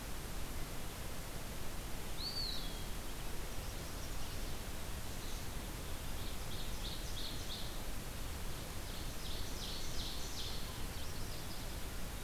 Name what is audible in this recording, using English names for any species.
Eastern Wood-Pewee, Black-and-white Warbler, Ovenbird, Chestnut-sided Warbler